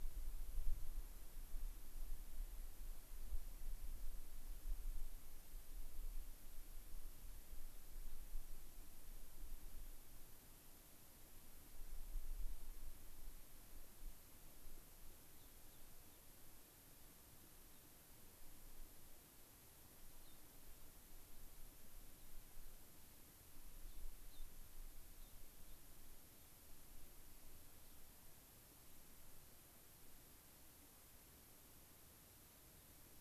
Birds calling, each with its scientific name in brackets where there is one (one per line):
Gray-crowned Rosy-Finch (Leucosticte tephrocotis)